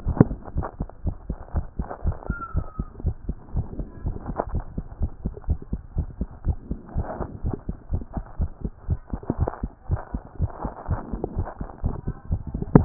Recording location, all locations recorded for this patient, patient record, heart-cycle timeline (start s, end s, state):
tricuspid valve (TV)
aortic valve (AV)+pulmonary valve (PV)+tricuspid valve (TV)+mitral valve (MV)
#Age: Child
#Sex: Male
#Height: 130.0 cm
#Weight: 26.7 kg
#Pregnancy status: False
#Murmur: Absent
#Murmur locations: nan
#Most audible location: nan
#Systolic murmur timing: nan
#Systolic murmur shape: nan
#Systolic murmur grading: nan
#Systolic murmur pitch: nan
#Systolic murmur quality: nan
#Diastolic murmur timing: nan
#Diastolic murmur shape: nan
#Diastolic murmur grading: nan
#Diastolic murmur pitch: nan
#Diastolic murmur quality: nan
#Outcome: Normal
#Campaign: 2014 screening campaign
0.18	0.28	systole
0.28	0.38	S2
0.38	0.54	diastole
0.54	0.66	S1
0.66	0.78	systole
0.78	0.88	S2
0.88	1.04	diastole
1.04	1.16	S1
1.16	1.28	systole
1.28	1.38	S2
1.38	1.54	diastole
1.54	1.66	S1
1.66	1.78	systole
1.78	1.88	S2
1.88	2.04	diastole
2.04	2.16	S1
2.16	2.28	systole
2.28	2.38	S2
2.38	2.54	diastole
2.54	2.66	S1
2.66	2.78	systole
2.78	2.88	S2
2.88	3.04	diastole
3.04	3.16	S1
3.16	3.28	systole
3.28	3.38	S2
3.38	3.54	diastole
3.54	3.66	S1
3.66	3.78	systole
3.78	3.88	S2
3.88	4.04	diastole
4.04	4.16	S1
4.16	4.26	systole
4.26	4.36	S2
4.36	4.52	diastole
4.52	4.64	S1
4.64	4.76	systole
4.76	4.84	S2
4.84	5.00	diastole
5.00	5.12	S1
5.12	5.24	systole
5.24	5.34	S2
5.34	5.48	diastole
5.48	5.58	S1
5.58	5.70	systole
5.70	5.80	S2
5.80	5.96	diastole
5.96	6.08	S1
6.08	6.20	systole
6.20	6.30	S2
6.30	6.46	diastole
6.46	6.58	S1
6.58	6.70	systole
6.70	6.80	S2
6.80	6.96	diastole
6.96	7.08	S1
7.08	7.18	systole
7.18	7.28	S2
7.28	7.44	diastole
7.44	7.54	S1
7.54	7.66	systole
7.66	7.76	S2
7.76	7.92	diastole
7.92	8.04	S1
8.04	8.16	systole
8.16	8.24	S2
8.24	8.40	diastole
8.40	8.52	S1
8.52	8.64	systole
8.64	8.72	S2
8.72	8.88	diastole
8.88	9.00	S1
9.00	9.12	systole
9.12	9.22	S2
9.22	9.38	diastole
9.38	9.52	S1
9.52	9.64	systole
9.64	9.74	S2
9.74	9.90	diastole
9.90	10.00	S1
10.00	10.14	systole
10.14	10.24	S2
10.24	10.40	diastole
10.40	10.52	S1
10.52	10.64	systole
10.64	10.72	S2
10.72	10.88	diastole
10.88	11.00	S1
11.00	11.10	systole
11.10	11.20	S2
11.20	11.36	diastole
11.36	11.48	S1
11.48	11.60	systole
11.60	11.68	S2
11.68	11.84	diastole
11.84	11.96	S1
11.96	12.08	systole
12.08	12.16	S2
12.16	12.30	diastole
12.30	12.42	S1
12.42	12.52	systole
12.52	12.62	S2
12.62	12.74	diastole
12.74	12.85	S1